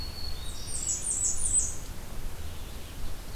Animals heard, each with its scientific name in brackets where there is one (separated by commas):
Black-throated Green Warbler (Setophaga virens), Red-eyed Vireo (Vireo olivaceus), Ovenbird (Seiurus aurocapilla), Blackburnian Warbler (Setophaga fusca)